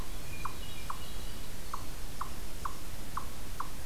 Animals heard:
Hermit Thrush (Catharus guttatus), Eastern Chipmunk (Tamias striatus)

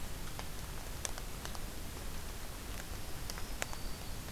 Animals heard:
Black-throated Green Warbler (Setophaga virens)

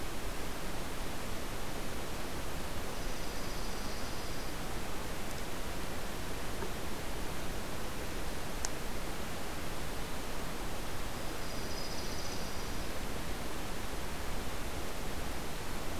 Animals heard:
Dark-eyed Junco (Junco hyemalis)

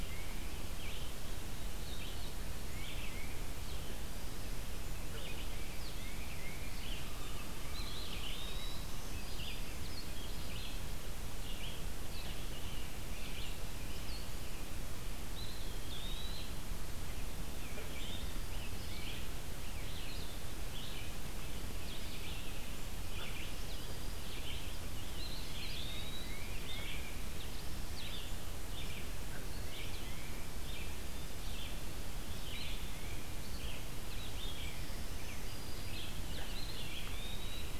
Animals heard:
Blue-headed Vireo (Vireo solitarius), Tufted Titmouse (Baeolophus bicolor), Red-eyed Vireo (Vireo olivaceus), Eastern Wood-Pewee (Contopus virens), Black-throated Green Warbler (Setophaga virens)

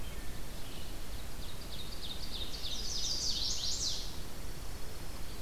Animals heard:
Chestnut-sided Warbler (Setophaga pensylvanica), Ovenbird (Seiurus aurocapilla), Dark-eyed Junco (Junco hyemalis)

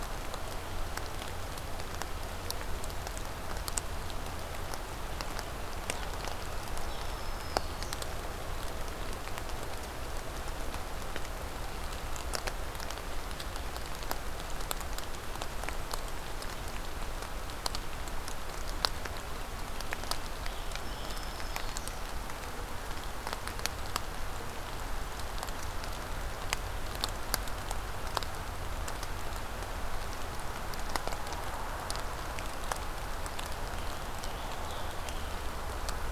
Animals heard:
Scarlet Tanager (Piranga olivacea), Black-throated Green Warbler (Setophaga virens)

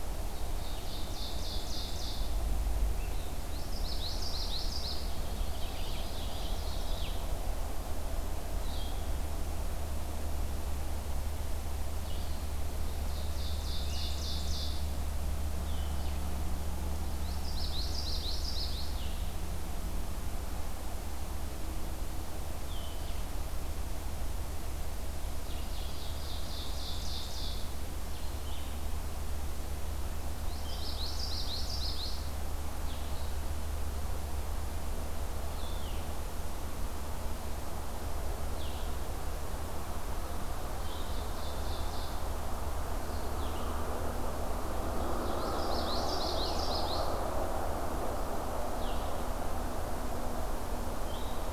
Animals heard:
unidentified call, Red-eyed Vireo (Vireo olivaceus), Ovenbird (Seiurus aurocapilla), Common Yellowthroat (Geothlypis trichas)

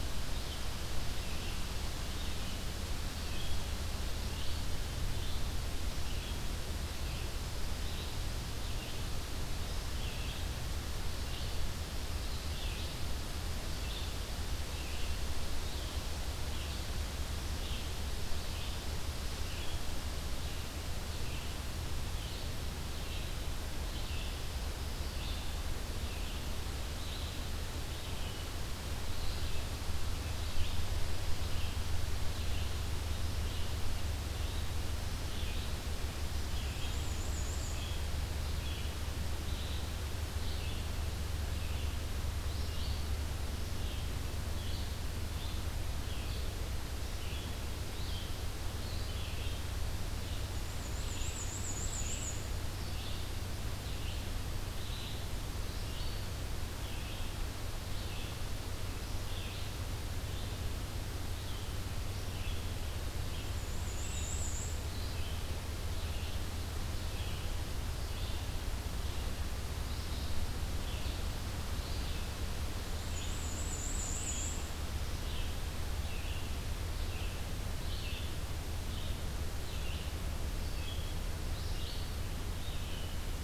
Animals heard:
Red-eyed Vireo (Vireo olivaceus), Black-and-white Warbler (Mniotilta varia)

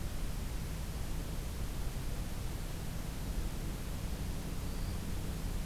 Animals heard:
Black-throated Green Warbler (Setophaga virens)

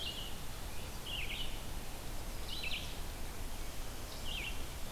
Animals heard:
Red-eyed Vireo (Vireo olivaceus)

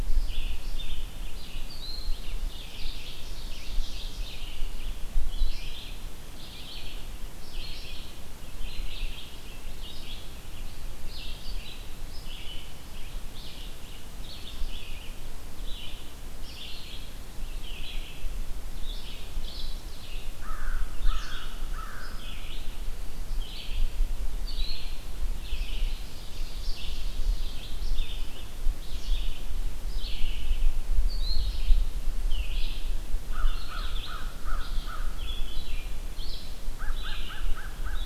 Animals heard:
Ovenbird (Seiurus aurocapilla), Red-eyed Vireo (Vireo olivaceus), American Crow (Corvus brachyrhynchos)

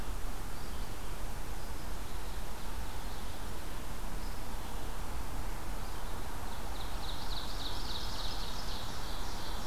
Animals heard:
Red-eyed Vireo (Vireo olivaceus), Ovenbird (Seiurus aurocapilla)

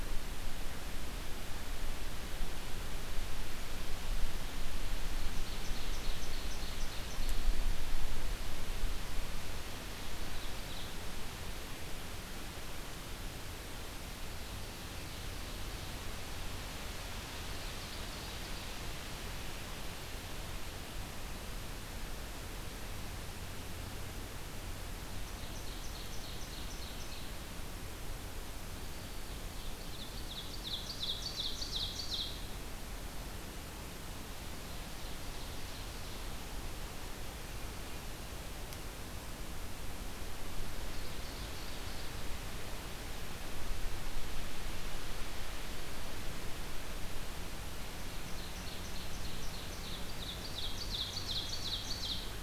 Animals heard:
Ovenbird (Seiurus aurocapilla), Black-throated Green Warbler (Setophaga virens)

